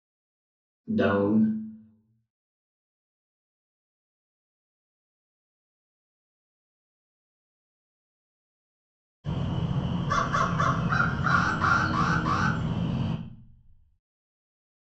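At 0.88 seconds, someone says "down". After that, at 9.24 seconds, a crow can be heard. Meanwhile, at 11.29 seconds, you can hear an alarm.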